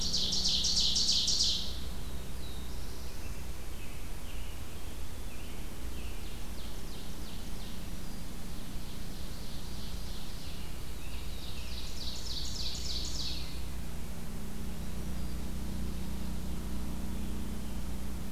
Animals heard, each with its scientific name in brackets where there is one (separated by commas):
Black-throated Blue Warbler (Setophaga caerulescens), Ovenbird (Seiurus aurocapilla), Black-throated Green Warbler (Setophaga virens), American Robin (Turdus migratorius)